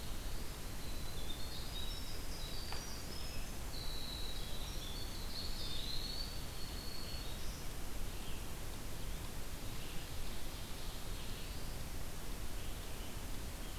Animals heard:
Eastern Wood-Pewee (Contopus virens), Black-throated Blue Warbler (Setophaga caerulescens), Ovenbird (Seiurus aurocapilla), Black-throated Green Warbler (Setophaga virens), Red-eyed Vireo (Vireo olivaceus), Winter Wren (Troglodytes hiemalis)

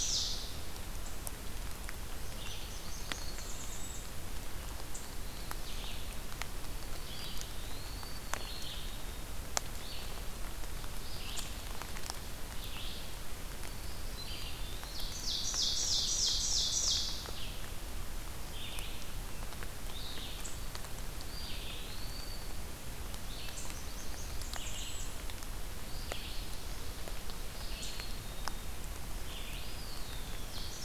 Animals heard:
Black-capped Chickadee (Poecile atricapillus), Red-eyed Vireo (Vireo olivaceus), Blackburnian Warbler (Setophaga fusca), Ovenbird (Seiurus aurocapilla), Eastern Wood-Pewee (Contopus virens)

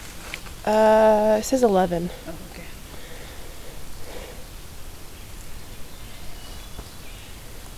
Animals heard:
Hermit Thrush (Catharus guttatus)

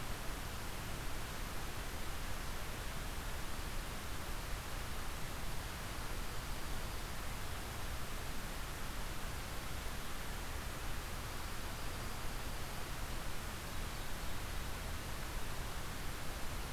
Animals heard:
Dark-eyed Junco (Junco hyemalis)

